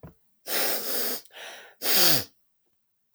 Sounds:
Sniff